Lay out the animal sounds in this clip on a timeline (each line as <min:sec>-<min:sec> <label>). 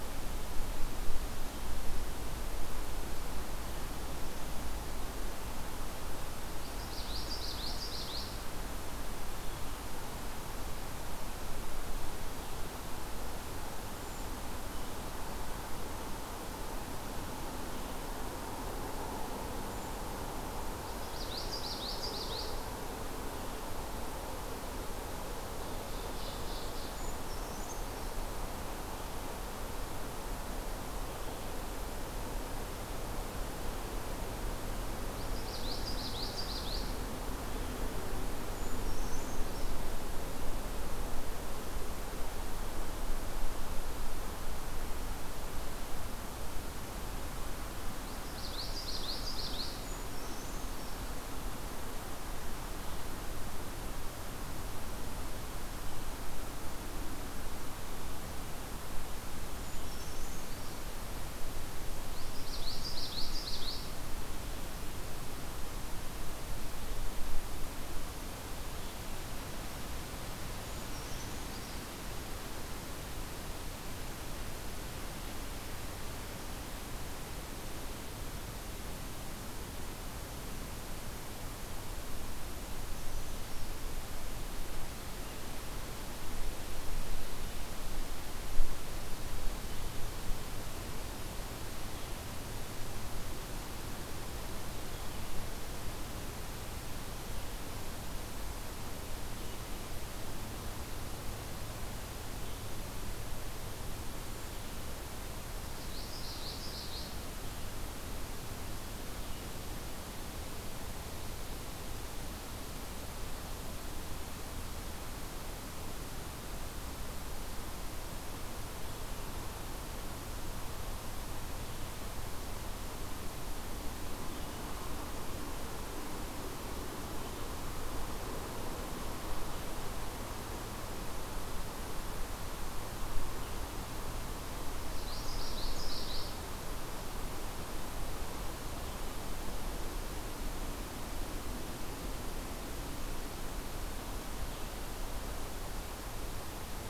0:06.6-0:08.4 Common Yellowthroat (Geothlypis trichas)
0:13.9-0:14.2 Brown Creeper (Certhia americana)
0:19.7-0:20.0 Brown Creeper (Certhia americana)
0:20.7-0:22.6 Common Yellowthroat (Geothlypis trichas)
0:25.7-0:27.0 Ovenbird (Seiurus aurocapilla)
0:26.9-0:28.1 Brown Creeper (Certhia americana)
0:35.2-0:37.0 Common Yellowthroat (Geothlypis trichas)
0:38.5-0:39.8 Brown Creeper (Certhia americana)
0:47.9-0:49.8 Common Yellowthroat (Geothlypis trichas)
0:49.9-0:51.0 Brown Creeper (Certhia americana)
0:59.6-1:00.8 Brown Creeper (Certhia americana)
1:02.1-1:03.9 Common Yellowthroat (Geothlypis trichas)
1:10.7-1:11.9 Brown Creeper (Certhia americana)
1:45.7-1:47.1 Common Yellowthroat (Geothlypis trichas)
2:14.9-2:16.4 Common Yellowthroat (Geothlypis trichas)